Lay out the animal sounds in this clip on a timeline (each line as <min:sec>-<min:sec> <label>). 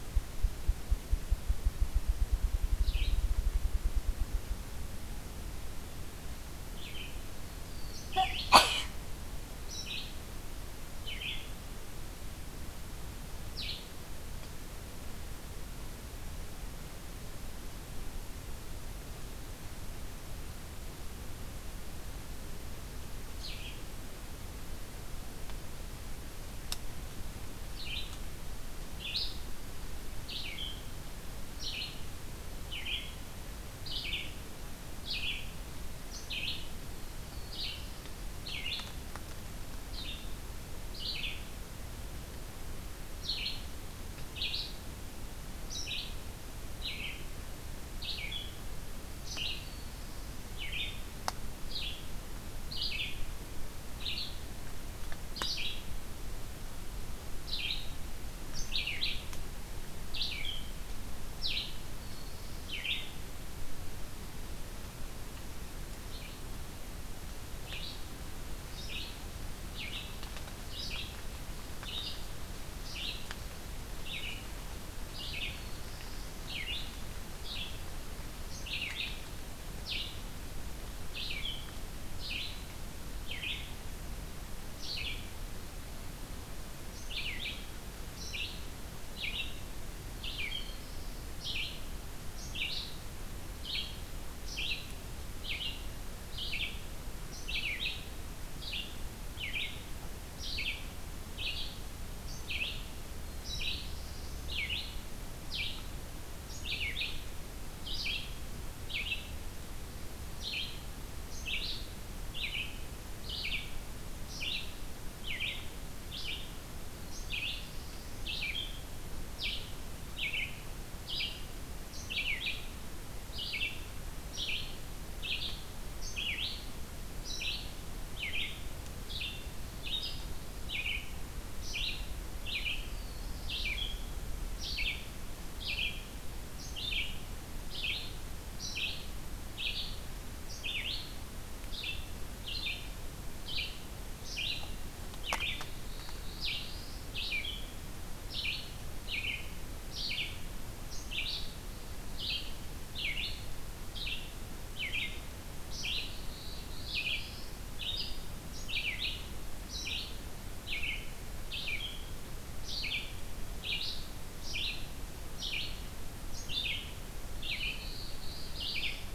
0:02.7-0:13.9 Red-eyed Vireo (Vireo olivaceus)
0:07.5-0:08.9 Black-throated Blue Warbler (Setophaga caerulescens)
0:23.4-2:49.1 Red-eyed Vireo (Vireo olivaceus)
0:36.9-0:38.1 Black-throated Blue Warbler (Setophaga caerulescens)
0:49.4-0:50.5 Black-throated Blue Warbler (Setophaga caerulescens)
1:01.8-1:03.0 Black-throated Blue Warbler (Setophaga caerulescens)
1:15.4-1:16.6 Black-throated Blue Warbler (Setophaga caerulescens)
1:30.3-1:31.4 Black-throated Blue Warbler (Setophaga caerulescens)
1:43.4-1:44.5 Black-throated Blue Warbler (Setophaga caerulescens)
1:57.1-1:58.3 Black-throated Blue Warbler (Setophaga caerulescens)
2:12.8-2:13.8 Black-throated Blue Warbler (Setophaga caerulescens)
2:25.7-2:27.1 Black-throated Blue Warbler (Setophaga caerulescens)
2:36.0-2:37.5 Black-throated Blue Warbler (Setophaga caerulescens)
2:47.4-2:49.0 Black-throated Blue Warbler (Setophaga caerulescens)